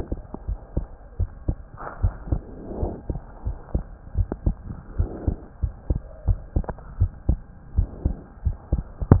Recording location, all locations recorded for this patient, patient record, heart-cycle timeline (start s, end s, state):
pulmonary valve (PV)
aortic valve (AV)+pulmonary valve (PV)+tricuspid valve (TV)+mitral valve (MV)
#Age: Child
#Sex: Male
#Height: 111.0 cm
#Weight: 17.8 kg
#Pregnancy status: False
#Murmur: Absent
#Murmur locations: nan
#Most audible location: nan
#Systolic murmur timing: nan
#Systolic murmur shape: nan
#Systolic murmur grading: nan
#Systolic murmur pitch: nan
#Systolic murmur quality: nan
#Diastolic murmur timing: nan
#Diastolic murmur shape: nan
#Diastolic murmur grading: nan
#Diastolic murmur pitch: nan
#Diastolic murmur quality: nan
#Outcome: Normal
#Campaign: 2015 screening campaign
0.00	0.45	unannotated
0.45	0.58	S1
0.58	0.74	systole
0.74	0.88	S2
0.88	1.18	diastole
1.18	1.30	S1
1.30	1.46	systole
1.46	1.60	S2
1.60	1.98	diastole
1.98	2.14	S1
2.14	2.28	systole
2.28	2.42	S2
2.42	2.80	diastole
2.80	2.94	S1
2.94	3.06	systole
3.06	3.20	S2
3.20	3.44	diastole
3.44	3.58	S1
3.58	3.72	systole
3.72	3.86	S2
3.86	4.16	diastole
4.16	4.28	S1
4.28	4.44	systole
4.44	4.58	S2
4.58	4.96	diastole
4.96	5.10	S1
5.10	5.26	systole
5.26	5.36	S2
5.36	5.60	diastole
5.60	5.74	S1
5.74	5.88	systole
5.88	6.02	S2
6.02	6.26	diastole
6.26	6.42	S1
6.42	6.54	systole
6.54	6.68	S2
6.68	6.98	diastole
6.98	7.12	S1
7.12	7.26	systole
7.26	7.40	S2
7.40	7.72	diastole
7.72	7.90	S1
7.90	8.03	systole
8.03	8.18	S2
8.18	8.43	diastole
8.43	8.58	S1
8.58	8.69	systole
8.69	8.84	S2
8.84	9.20	unannotated